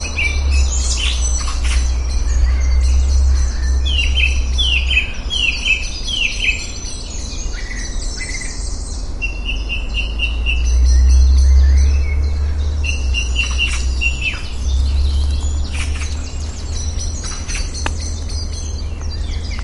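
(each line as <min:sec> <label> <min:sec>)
0:00.0 Birds chirping. 0:19.6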